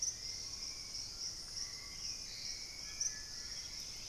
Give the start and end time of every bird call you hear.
[0.00, 4.08] Hauxwell's Thrush (Turdus hauxwelli)
[0.00, 4.08] White-throated Toucan (Ramphastos tucanus)
[0.34, 2.34] Screaming Piha (Lipaugus vociferans)
[3.54, 4.08] Dusky-capped Greenlet (Pachysylvia hypoxantha)

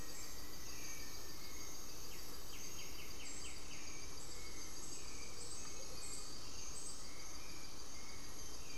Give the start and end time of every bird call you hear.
[0.00, 1.55] Black-faced Antthrush (Formicarius analis)
[0.00, 8.77] Gray-fronted Dove (Leptotila rufaxilla)
[1.95, 8.77] White-winged Becard (Pachyramphus polychopterus)
[5.65, 6.05] Amazonian Motmot (Momotus momota)

